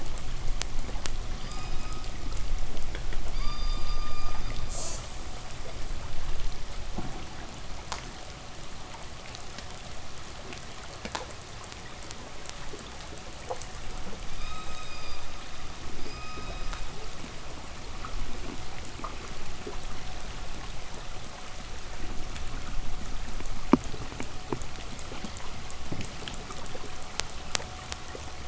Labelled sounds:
1.2	5.3	killer whale, K pod, call S16, 0.85 to 8.0 kHz
14.0	17.3	killer whale, K pod, call S16, 0.84 to 8.0 kHz

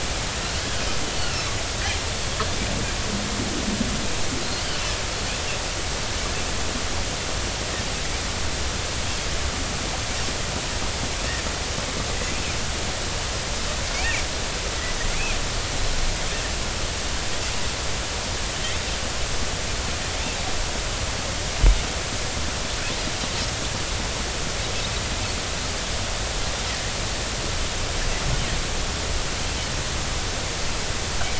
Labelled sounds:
13.9	14.2	Pacific white-sided dolphin, 2.1 to 2.8 kHz

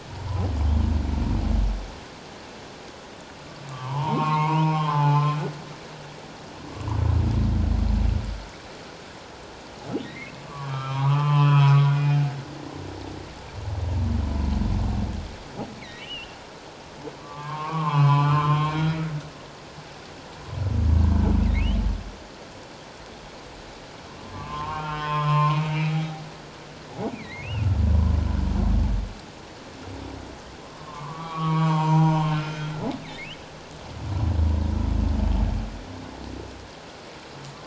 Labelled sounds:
3.7	5.4	humpback whale, 0.78 to 3.2 kHz
10.0	12.3	humpback whale, 0.78 to 3.4 kHz
16.0	19.2	humpback whale, 0.81 to 5.1 kHz
24.2	25.9	humpback whale, 0.84 to 3.3 kHz
27.1	27.8	humpback whale, 1.3 to 3.0 kHz
30.8	32.7	humpback whale, 0.78 to 2.5 kHz

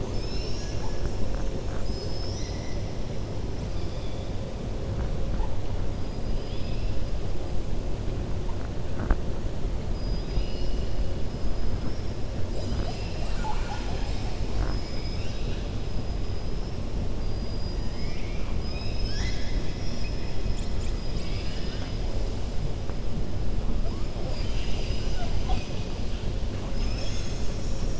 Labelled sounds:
0.0	1.2	killer whale, 0.93 to 7.7 kHz
1.7	2.8	killer whale, 2.0 to 7.7 kHz
17.2	18.5	killer whale, 1.2 to 5.9 kHz
24.2	25.9	killer whale, 0.61 to 6.1 kHz

